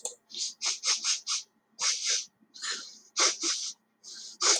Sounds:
Sniff